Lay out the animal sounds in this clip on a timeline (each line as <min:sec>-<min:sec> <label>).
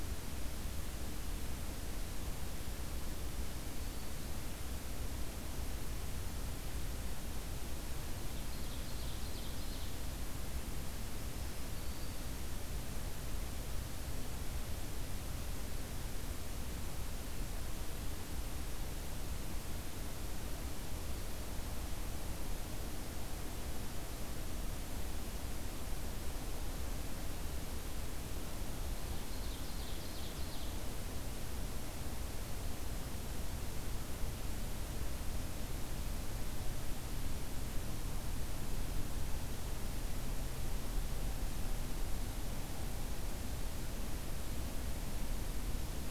0:03.7-0:04.3 Black-throated Green Warbler (Setophaga virens)
0:08.1-0:10.1 Ovenbird (Seiurus aurocapilla)
0:10.9-0:12.4 Black-throated Green Warbler (Setophaga virens)
0:29.1-0:30.8 Ovenbird (Seiurus aurocapilla)